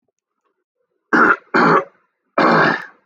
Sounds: Throat clearing